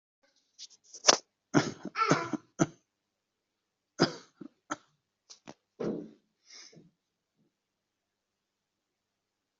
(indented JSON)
{
  "expert_labels": [
    {
      "quality": "ok",
      "cough_type": "unknown",
      "dyspnea": false,
      "wheezing": false,
      "stridor": false,
      "choking": false,
      "congestion": false,
      "nothing": true,
      "diagnosis": "healthy cough",
      "severity": "pseudocough/healthy cough"
    }
  ],
  "age": 90,
  "gender": "female",
  "respiratory_condition": true,
  "fever_muscle_pain": true,
  "status": "COVID-19"
}